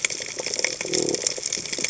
{"label": "biophony", "recorder": "HydroMoth"}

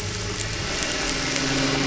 {"label": "anthrophony, boat engine", "recorder": "SoundTrap 500"}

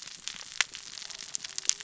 {"label": "biophony, cascading saw", "recorder": "SoundTrap 600 or HydroMoth"}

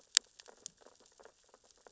{"label": "biophony, sea urchins (Echinidae)", "recorder": "SoundTrap 600 or HydroMoth"}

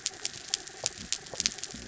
{"label": "anthrophony, mechanical", "recorder": "SoundTrap 300"}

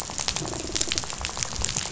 {"label": "biophony, rattle", "recorder": "SoundTrap 500"}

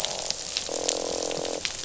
{"label": "biophony, croak", "recorder": "SoundTrap 500"}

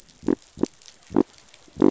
{"label": "biophony", "recorder": "SoundTrap 500"}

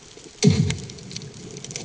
{"label": "anthrophony, bomb", "recorder": "HydroMoth"}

